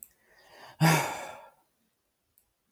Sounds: Sigh